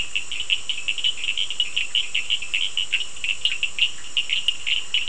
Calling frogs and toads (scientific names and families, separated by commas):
Sphaenorhynchus surdus (Hylidae)